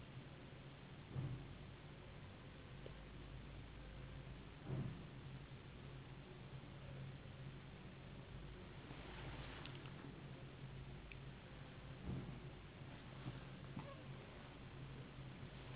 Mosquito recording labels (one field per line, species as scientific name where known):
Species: Anopheles gambiae s.s.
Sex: female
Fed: unfed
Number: one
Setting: insect culture